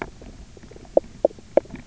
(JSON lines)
{"label": "biophony, knock croak", "recorder": "SoundTrap 300"}